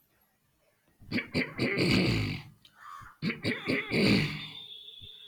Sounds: Throat clearing